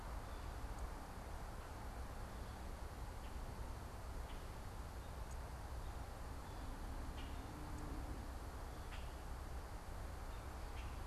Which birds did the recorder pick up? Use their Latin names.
Quiscalus quiscula